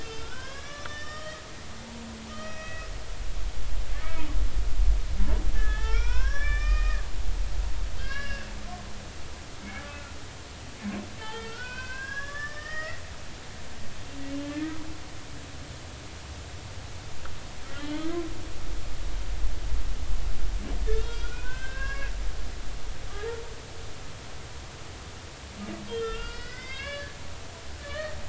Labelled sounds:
0.0	1.4	humpback whale, 0.99 to 5.9 kHz
2.3	2.9	humpback whale, 1.2 to 5.8 kHz
5.5	7.0	humpback whale, 0.93 to 6.2 kHz
7.6	8.5	humpback whale, 1.0 to 5.7 kHz
9.7	10.1	humpback whale, 1.3 to 2.7 kHz
11.2	13.0	humpback whale, 0.93 to 5.2 kHz
14.5	14.8	humpback whale, 1.7 to 2.0 kHz
17.7	18.1	humpback whale, 2.9 to 3.6 kHz
20.9	22.1	humpback whale, 0.96 to 3.8 kHz
25.9	27.1	humpback whale, 1.3 to 5.1 kHz
27.8	28.2	humpback whale, 1.1 to 1.9 kHz

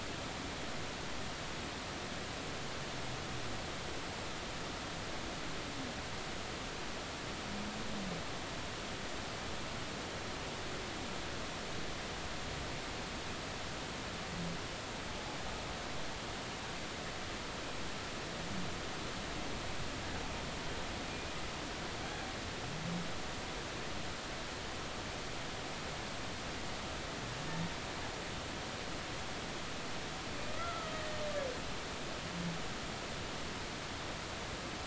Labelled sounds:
30.5	31.2	humpback whale, 1.2 to 2.0 kHz

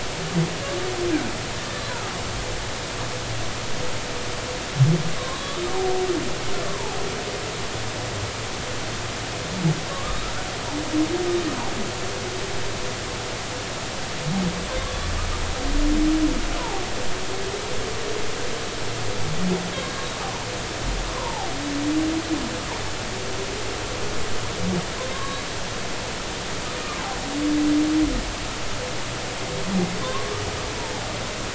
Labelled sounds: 5.2	5.7	humpback whale, 0.99 to 1.3 kHz
6.7	7.0	humpback whale, 0.80 to 1.1 kHz
9.9	10.2	humpback whale, 1.0 to 1.3 kHz
14.8	15.1	humpback whale, 0.99 to 1.2 kHz
16.6	16.8	humpback whale, 0.80 to 1.1 kHz
21.1	21.5	humpback whale, 0.80 to 1.1 kHz
25.1	25.4	humpback whale, 0.99 to 1.2 kHz
30.0	30.3	humpback whale, 0.96 to 1.2 kHz

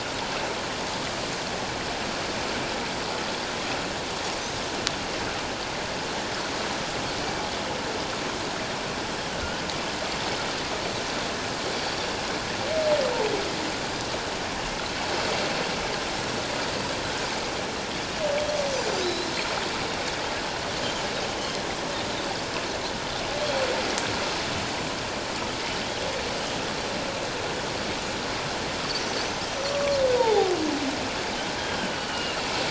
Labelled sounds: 4.4	4.6	Pacific white-sided dolphin, 6.0 to 6.7 kHz
19.0	19.3	Pacific white-sided dolphin, 3.7 to 4.2 kHz
29.6	30.0	Pacific white-sided dolphin, 1.1 to 5.9 kHz
30.1	30.6	humpback whale, 0.78 to 3.8 kHz
31.6	32.4	humpback whale, 2.6 to 3.3 kHz

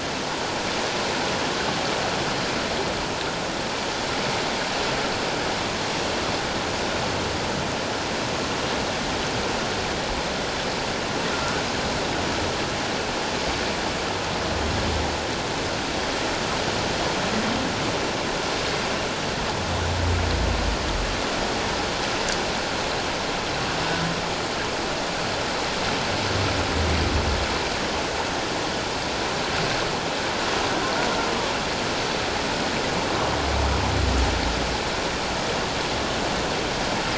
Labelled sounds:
11.3	11.6	humpback whale, 1.2 to 1.5 kHz

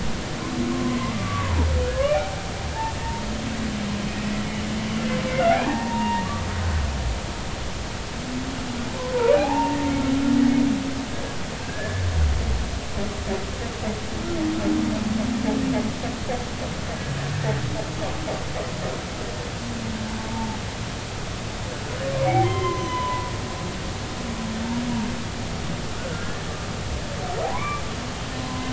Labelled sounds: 0.7	1.7	humpback whale, 0.80 to 2.1 kHz
2.0	2.3	humpback whale, 2.1 to 2.5 kHz
5.6	6.3	humpback whale, 0.80 to 2.8 kHz
9.3	9.8	humpback whale, 0.80 to 2.6 kHz
11.6	12.0	humpback whale, 1.5 to 1.8 kHz
20.3	20.6	humpback whale, 0.80 to 0.96 kHz
22.2	23.3	humpback whale, 0.83 to 3.2 kHz
26.1	26.4	humpback whale, 1.3 to 1.8 kHz
27.5	27.8	humpback whale, 0.93 to 2.5 kHz
28.4	28.7	humpback whale, 0.93 to 1.1 kHz

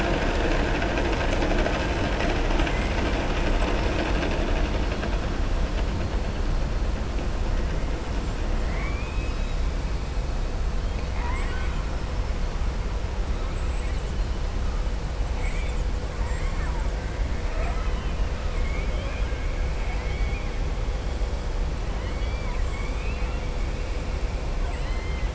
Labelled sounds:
8.6	9.6	killer whale, southern resident, 1.1 to 5.1 kHz
10.8	11.8	killer whale, southern resident, 0.85 to 3.8 kHz
15.3	15.8	killer whale, southern resident, 2.0 to 3.7 kHz
16.1	16.9	killer whale, southern resident, 0.88 to 3.0 kHz
17.4	18.2	killer whale, southern resident, 0.64 to 3.9 kHz
18.5	19.4	killer whale, southern resident, 1.1 to 3.4 kHz
19.8	20.5	killer whale, southern resident, 2.0 to 4.1 kHz
21.9	23.4	killer whale, southern resident, 1.0 to 4.7 kHz
24.6	25.3	killer whale, southern resident, 1.0 to 8.0 kHz

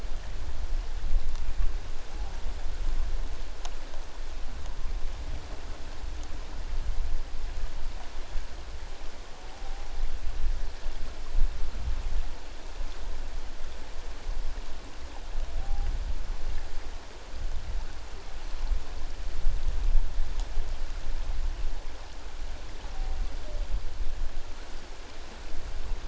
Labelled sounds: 15.6	15.9	humpback whale, 0.78 to 0.91 kHz

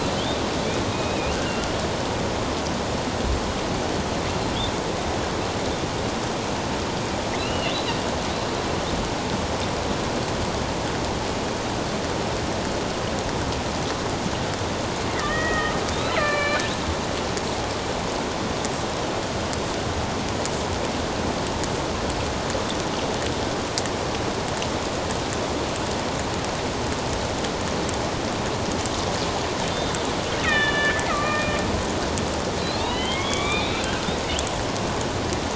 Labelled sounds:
0.9	1.3	killer whale, northern resident, A clan, AB subclan, 2.3 to 3.9 kHz
7.4	8.0	killer whale, northern resident, A clan, AB subclan, 2.5 to 4.1 kHz
15.1	16.7	killer whale, northern resident, A clan, AB subclan, 1.1 to 4.2 kHz
30.4	31.6	killer whale, northern resident, A clan, AB subclan, 1.1 to 3.8 kHz
32.8	34.0	killer whale, northern resident, A clan, AB subclan, 1.0 to 4.1 kHz

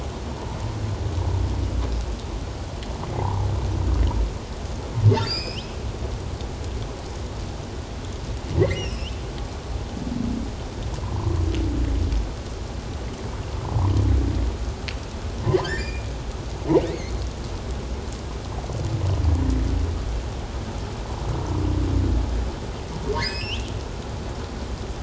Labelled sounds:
3.2	3.5	humpback whale, 0.78 to 1.1 kHz
5.1	5.8	humpback whale, 1.3 to 5.5 kHz
8.6	9.1	humpback whale, 1.8 to 5.8 kHz
11.0	11.4	humpback whale, 0.88 to 1.1 kHz
15.6	16.1	humpback whale, 1.5 to 7.3 kHz
23.1	23.7	humpback whale, 1.5 to 5.7 kHz

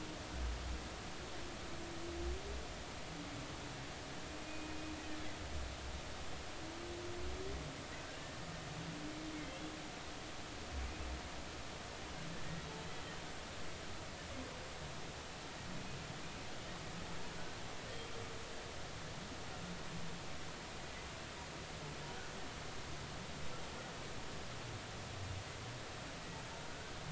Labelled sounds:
4.4	4.8	humpback whale, 2.4 to 2.6 kHz
8.0	8.4	humpback whale, 1.5 to 1.9 kHz
17.3	17.6	humpback whale, 1.4 to 1.6 kHz

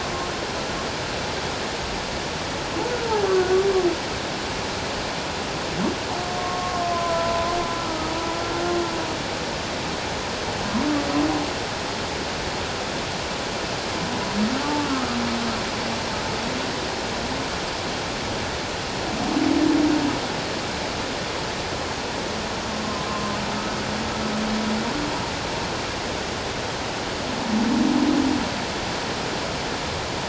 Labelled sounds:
6.4	7.6	humpback whale, 0.94 to 1.4 kHz
7.9	8.1	humpback whale, 1.2 to 1.3 kHz
14.6	14.9	humpback whale, 1.1 to 1.2 kHz
23.1	23.3	humpback whale, 1.0 to 1.1 kHz

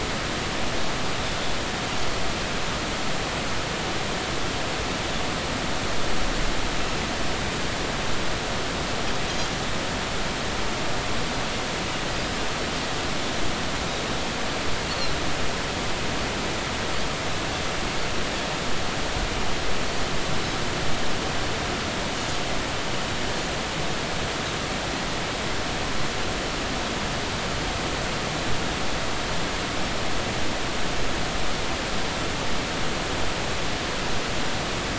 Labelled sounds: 14.9	15.1	Pacific white-sided dolphin, 4.0 to 4.5 kHz

